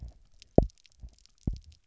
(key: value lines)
label: biophony, double pulse
recorder: SoundTrap 300